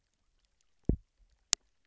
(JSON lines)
{"label": "biophony, double pulse", "recorder": "SoundTrap 300"}